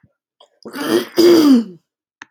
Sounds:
Throat clearing